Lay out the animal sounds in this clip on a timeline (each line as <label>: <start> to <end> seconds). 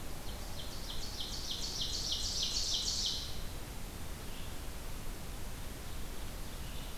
Ovenbird (Seiurus aurocapilla): 0.1 to 3.5 seconds
Red-eyed Vireo (Vireo olivaceus): 4.0 to 7.0 seconds